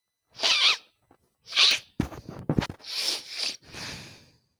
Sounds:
Sniff